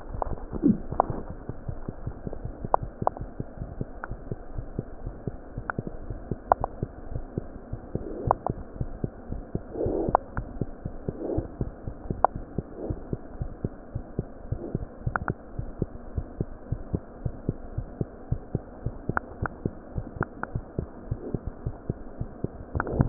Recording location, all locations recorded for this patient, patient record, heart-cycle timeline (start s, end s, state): pulmonary valve (PV)
aortic valve (AV)+pulmonary valve (PV)
#Age: Infant
#Sex: Female
#Height: 54.0 cm
#Weight: 4.7 kg
#Pregnancy status: False
#Murmur: Absent
#Murmur locations: nan
#Most audible location: nan
#Systolic murmur timing: nan
#Systolic murmur shape: nan
#Systolic murmur grading: nan
#Systolic murmur pitch: nan
#Systolic murmur quality: nan
#Diastolic murmur timing: nan
#Diastolic murmur shape: nan
#Diastolic murmur grading: nan
#Diastolic murmur pitch: nan
#Diastolic murmur quality: nan
#Outcome: Normal
#Campaign: 2015 screening campaign
0.00	6.93	unannotated
6.93	7.10	diastole
7.10	7.24	S1
7.24	7.34	systole
7.34	7.48	S2
7.48	7.70	diastole
7.70	7.84	S1
7.84	7.94	systole
7.94	8.08	S2
8.08	8.24	diastole
8.24	8.38	S1
8.38	8.46	systole
8.46	8.58	S2
8.58	8.80	diastole
8.80	8.94	S1
8.94	9.02	systole
9.02	9.14	S2
9.14	9.30	diastole
9.30	9.46	S1
9.46	9.54	systole
9.54	9.62	S2
9.62	9.82	diastole
9.82	9.93	S1
9.93	10.03	systole
10.03	10.12	S2
10.12	10.32	diastole
10.32	10.44	S1
10.44	10.54	systole
10.54	10.66	S2
10.66	10.83	diastole
10.83	10.96	S1
10.96	11.06	systole
11.06	11.16	S2
11.16	11.32	diastole
11.32	11.48	S1
11.48	11.58	systole
11.58	11.68	S2
11.68	11.83	diastole
11.83	11.98	S1
11.98	12.06	systole
12.06	12.18	S2
12.18	12.34	diastole
12.34	12.46	S1
12.46	12.56	systole
12.56	12.66	S2
12.66	12.84	diastole
12.84	13.00	S1
13.00	13.10	systole
13.10	13.20	S2
13.20	13.36	diastole
13.36	13.50	S1
13.50	13.60	systole
13.60	13.72	S2
13.72	13.93	diastole
13.93	14.04	S1
14.04	14.14	systole
14.14	14.26	S2
14.26	14.48	diastole
14.48	14.64	S1
14.64	14.72	systole
14.72	14.82	S2
14.82	15.04	diastole
15.04	15.14	S1
15.14	15.28	systole
15.28	15.38	S2
15.38	15.58	diastole
15.58	15.74	S1
15.74	15.80	systole
15.80	15.90	S2
15.90	16.12	diastole
16.12	16.30	S1
16.30	16.38	systole
16.38	16.48	S2
16.48	16.66	diastole
16.66	16.82	S1
16.82	16.92	systole
16.92	17.02	S2
17.02	17.20	diastole
17.20	17.38	S1
17.38	17.46	systole
17.46	17.56	S2
17.56	17.74	diastole
17.74	17.90	S1
17.90	17.98	systole
17.98	18.10	S2
18.10	18.28	diastole
18.28	18.41	S1
18.41	18.52	systole
18.52	18.62	S2
18.62	18.84	diastole
18.84	18.95	S1
18.95	19.06	systole
19.06	19.18	S2
19.18	19.40	diastole
19.40	19.54	S1
19.54	19.62	systole
19.62	19.74	S2
19.74	19.96	diastole
19.96	20.08	S1
20.08	20.16	systole
20.16	20.30	S2
20.30	20.50	diastole
20.50	20.62	S1
20.62	20.74	systole
20.74	20.88	S2
20.88	21.06	diastole
21.06	21.18	S1
21.18	21.28	systole
21.28	21.42	S2
21.42	21.64	diastole
21.64	21.76	S1
21.76	21.88	systole
21.88	21.98	S2
21.98	22.16	diastole
22.16	22.28	S1
22.28	22.40	systole
22.40	22.54	S2
22.54	23.09	unannotated